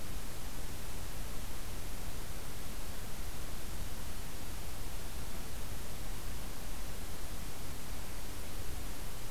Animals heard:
forest ambience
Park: Acadia National Park